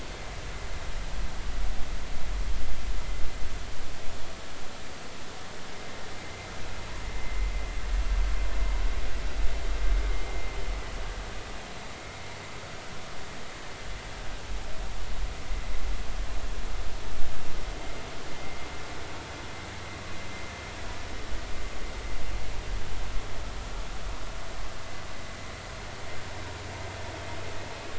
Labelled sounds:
6.2	6.5	vessel noise, 2.0 to 2.2 kHz

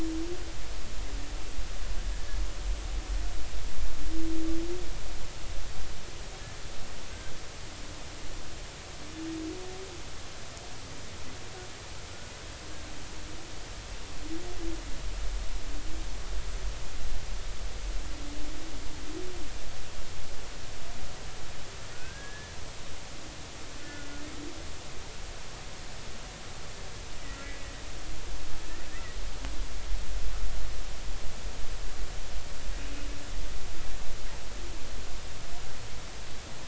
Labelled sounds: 21.9	22.5	humpback whale, 1.4 to 1.8 kHz
23.8	24.1	humpback whale, 1.4 to 1.5 kHz
28.6	29.2	humpback whale, 1.7 to 2.1 kHz

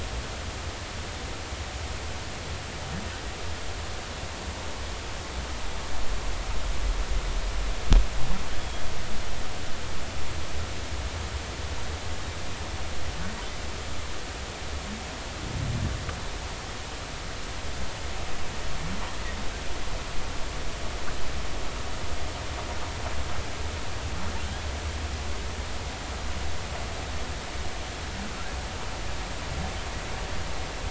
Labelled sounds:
8.6	8.8	humpback whale, 3.2 to 3.5 kHz

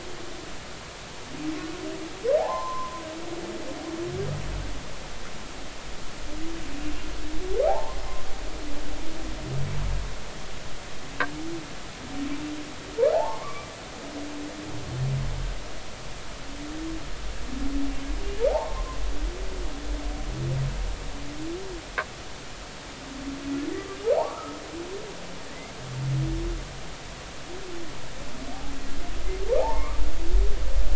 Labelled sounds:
2.4	3.0	humpback whale, 0.80 to 1.1 kHz
7.7	8.0	humpback whale, 0.80 to 1.1 kHz
13.1	13.7	humpback whale, 0.80 to 2.4 kHz
18.5	19.0	humpback whale, 0.80 to 1.1 kHz
24.0	24.6	humpback whale, 0.80 to 1.4 kHz
29.6	30.0	humpback whale, 0.80 to 1.3 kHz

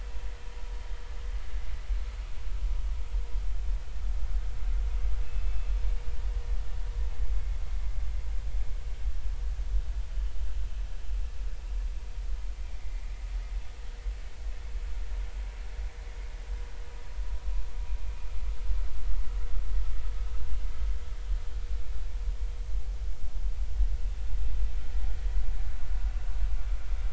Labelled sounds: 5.2	5.7	killer whale, northern resident, 2.5 to 2.7 kHz
12.8	13.1	vessel noise, 2.0 to 2.3 kHz

